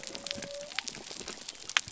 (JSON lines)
{"label": "biophony", "recorder": "SoundTrap 300"}